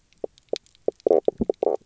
{"label": "biophony, knock croak", "recorder": "SoundTrap 300"}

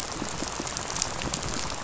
{"label": "biophony, rattle", "recorder": "SoundTrap 500"}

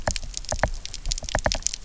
{"label": "biophony, knock", "recorder": "SoundTrap 300"}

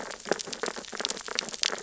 {"label": "biophony, sea urchins (Echinidae)", "recorder": "SoundTrap 600 or HydroMoth"}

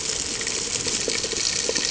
{"label": "ambient", "recorder": "HydroMoth"}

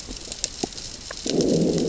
{"label": "biophony, growl", "recorder": "SoundTrap 600 or HydroMoth"}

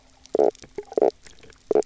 {"label": "biophony, knock croak", "recorder": "SoundTrap 300"}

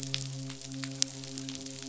{"label": "biophony, midshipman", "recorder": "SoundTrap 500"}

